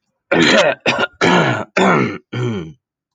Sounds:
Throat clearing